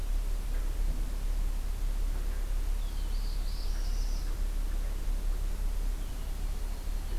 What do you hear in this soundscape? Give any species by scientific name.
Setophaga americana, Agelaius phoeniceus